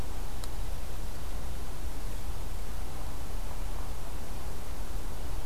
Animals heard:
forest ambience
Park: Marsh-Billings-Rockefeller National Historical Park